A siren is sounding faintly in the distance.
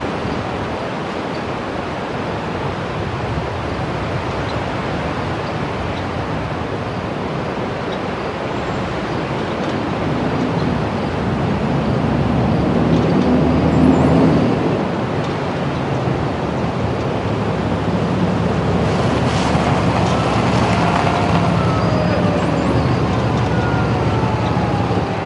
0:20.0 0:25.2

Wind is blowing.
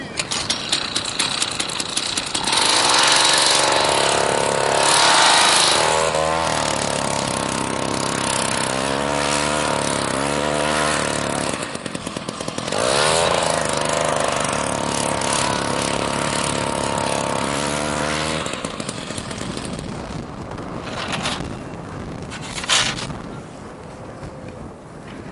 0:20.1 0:25.3

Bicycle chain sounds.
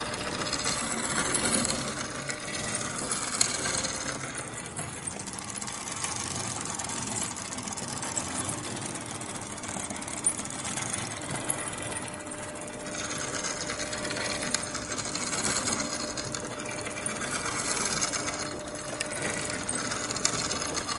0:00.9 0:11.9

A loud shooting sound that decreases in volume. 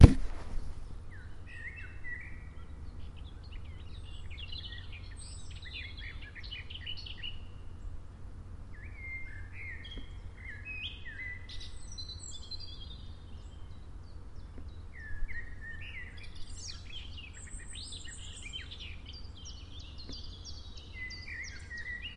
0:00.0 0:00.7

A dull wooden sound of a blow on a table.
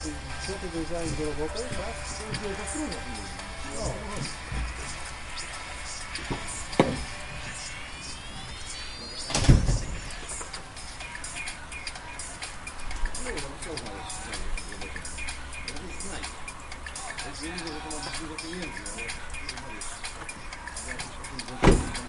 0:06.3 0:07.1, 0:09.2 0:10.2, 0:21.6 0:22.0

